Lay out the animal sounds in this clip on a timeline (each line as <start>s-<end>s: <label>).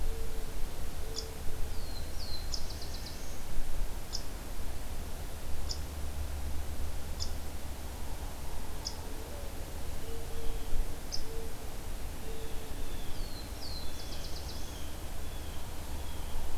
1.0s-1.4s: Downy Woodpecker (Dryobates pubescens)
1.6s-3.5s: Black-throated Blue Warbler (Setophaga caerulescens)
2.4s-2.7s: Downy Woodpecker (Dryobates pubescens)
2.5s-3.6s: Hermit Thrush (Catharus guttatus)
4.1s-4.2s: Downy Woodpecker (Dryobates pubescens)
5.6s-5.8s: Downy Woodpecker (Dryobates pubescens)
7.1s-7.3s: Downy Woodpecker (Dryobates pubescens)
8.2s-11.8s: Mourning Dove (Zenaida macroura)
8.7s-9.0s: Downy Woodpecker (Dryobates pubescens)
11.0s-11.3s: Downy Woodpecker (Dryobates pubescens)
12.2s-16.6s: Blue Jay (Cyanocitta cristata)
13.1s-14.8s: Black-throated Blue Warbler (Setophaga caerulescens)